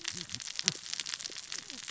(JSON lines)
{"label": "biophony, cascading saw", "recorder": "SoundTrap 600 or HydroMoth"}